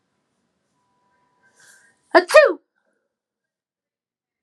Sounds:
Sneeze